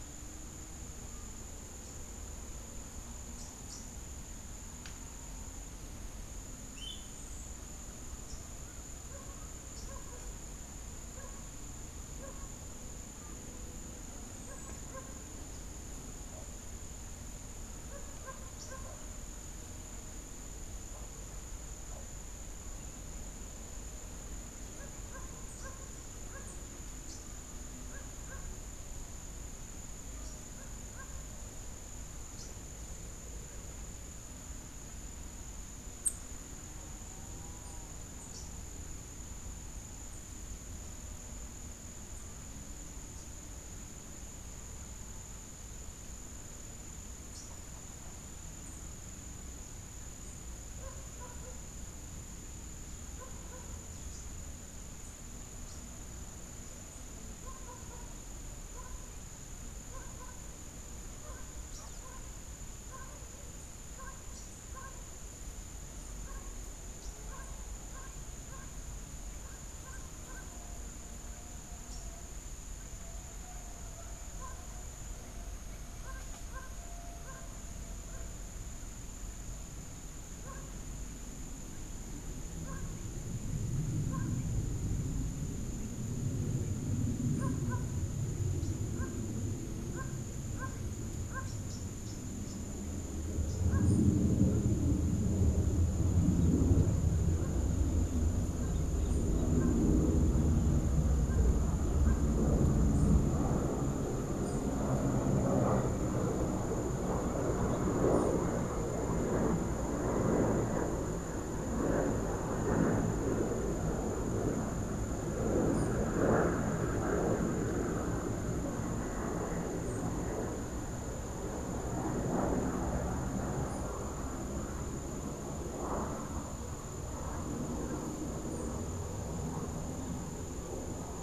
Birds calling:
Rufous-capped Warbler (Basileuterus rufifrons), Clay-colored Thrush (Turdus grayi), Blue-gray Tanager (Thraupis episcopus)

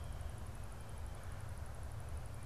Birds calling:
Red-bellied Woodpecker (Melanerpes carolinus)

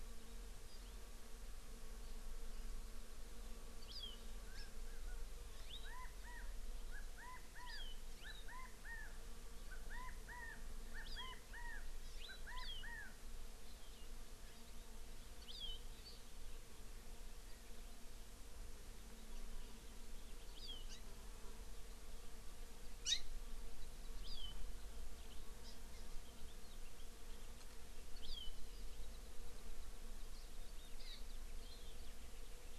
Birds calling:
California Quail (Callipepla californica), Hawaii Amakihi (Chlorodrepanis virens)

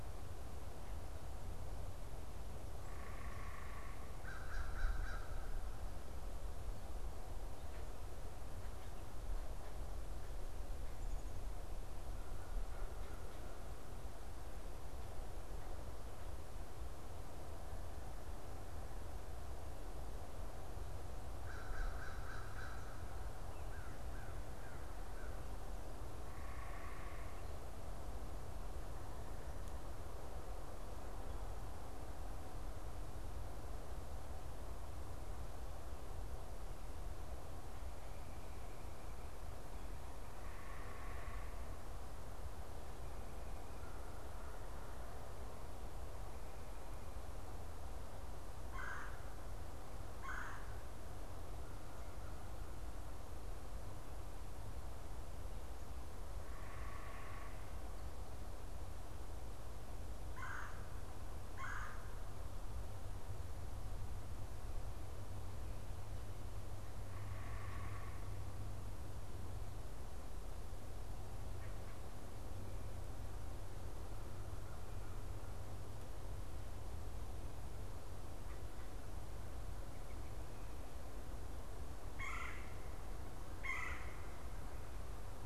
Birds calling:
American Crow (Corvus brachyrhynchos), unidentified bird, Red-bellied Woodpecker (Melanerpes carolinus)

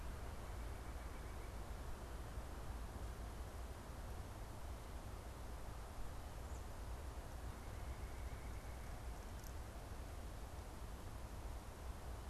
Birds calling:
White-breasted Nuthatch (Sitta carolinensis)

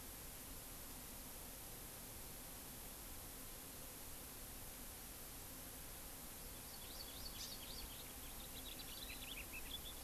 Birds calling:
Hawaii Amakihi (Chlorodrepanis virens), House Finch (Haemorhous mexicanus)

